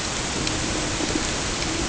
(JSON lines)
{"label": "ambient", "recorder": "HydroMoth"}